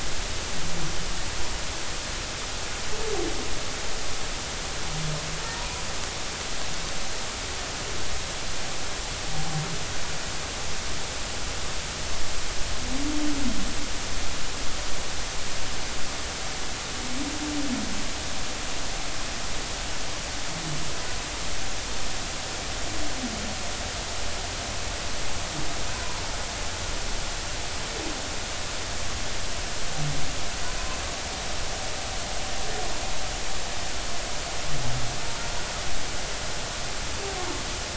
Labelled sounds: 25.9	26.2	humpback whale, 0.93 to 1.1 kHz

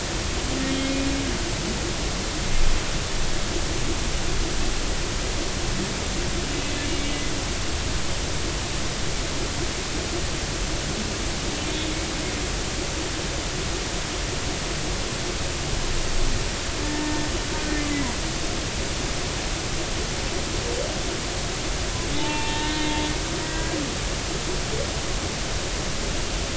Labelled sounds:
6.8	7.1	humpback whale, 2.2 to 2.3 kHz
16.8	17.3	humpback whale, 0.86 to 1.9 kHz
22.2	23.8	humpback whale, 0.83 to 4.0 kHz
24.4	24.6	humpback whale, 1.9 to 2.0 kHz

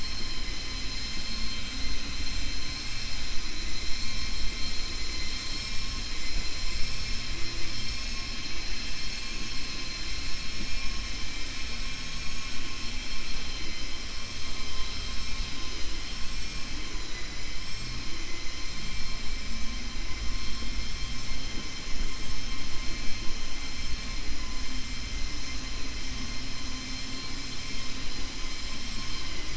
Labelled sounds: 11.8	12.6	vessel noise, 5.7 to 8.0 kHz
17.0	17.5	vessel noise, 1.0 to 3.0 kHz

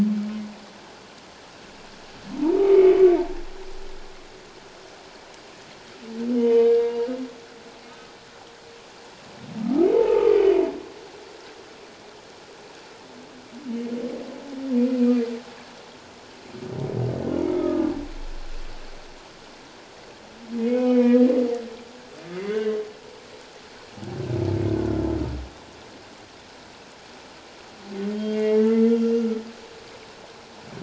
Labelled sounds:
2.6	3.0	humpback whale, 1.1 to 2.3 kHz
6.4	7.1	humpback whale, 0.88 to 3.1 kHz
9.6	10.4	humpback whale, 0.81 to 1.4 kHz
17.5	17.9	humpback whale, 1.2 to 1.3 kHz
20.6	21.3	humpback whale, 1.2 to 2.6 kHz
28.1	29.4	humpback whale, 1.3 to 3.3 kHz

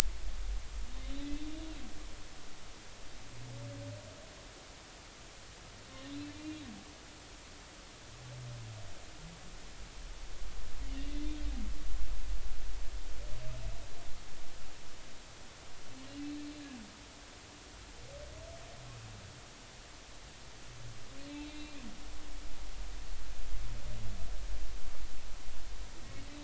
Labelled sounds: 0.9	1.4	humpback whale, 3.6 to 4.1 kHz
6.3	6.6	humpback whale, 2.3 to 2.5 kHz
21.3	21.7	humpback whale, 2.3 to 4.0 kHz

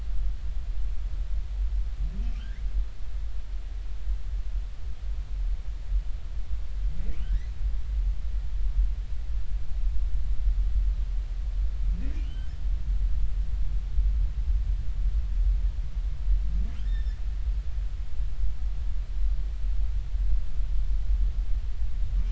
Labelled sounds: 2.4	2.6	humpback whale, 1.3 to 2.3 kHz
7.2	7.5	humpback whale, 1.4 to 2.1 kHz
12.2	12.6	humpback whale, 1.4 to 3.2 kHz
16.8	17.2	humpback whale, 1.7 to 5.5 kHz

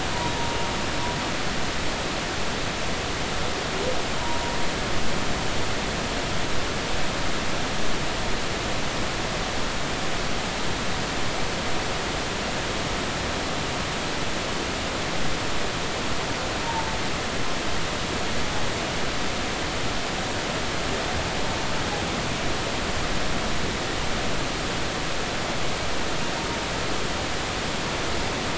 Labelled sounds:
0.1	0.4	humpback whale, 0.90 to 1.0 kHz
16.6	16.9	humpback whale, 0.83 to 0.99 kHz

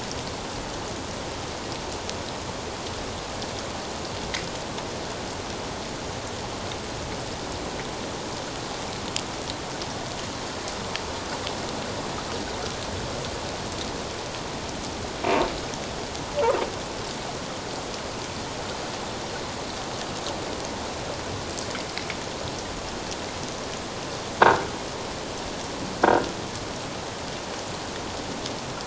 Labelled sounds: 26.0	26.3	croaking sound likely from a nearby submerged object, 1.4 to 1.7 kHz

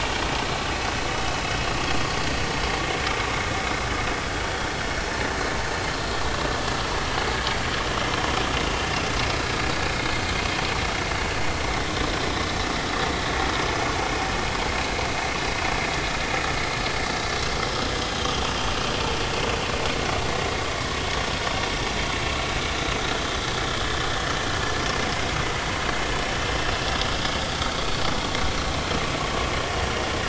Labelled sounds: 13.0	13.3	vessel noise, 1.9 to 2.0 kHz
18.0	18.3	vessel noise, 5.0 to 5.2 kHz

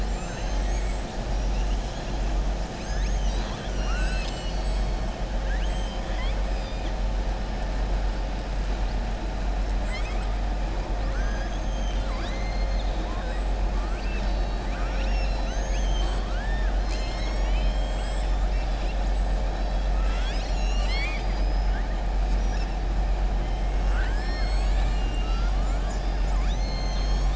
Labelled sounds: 13.7	14.7	killer whale, southern resident, 1.2 to 5.3 kHz
19.9	21.7	killer whale, southern resident, 1.2 to 7.9 kHz

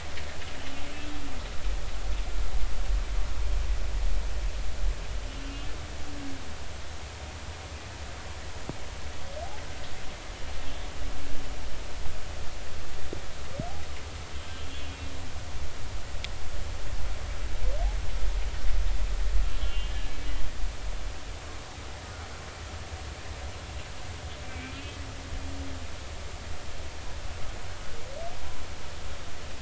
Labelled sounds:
5.3	5.7	humpback whale, 2.8 to 2.9 kHz
10.6	10.9	humpback whale, 3.2 to 3.5 kHz
14.5	15.2	humpback whale, 2.4 to 3.8 kHz
19.6	20.1	humpback whale, 2.7 to 3.4 kHz
24.4	25.0	humpback whale, 2.2 to 2.6 kHz

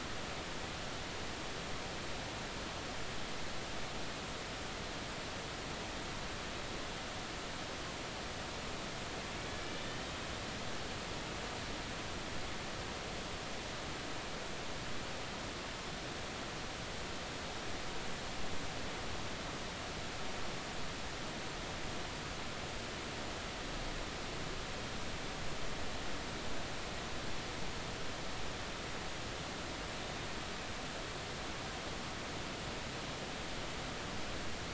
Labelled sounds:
9.9	10.2	killer whale, Bigg's (transient), 2.9 to 3.2 kHz

